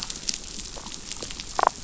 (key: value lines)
label: biophony, damselfish
recorder: SoundTrap 500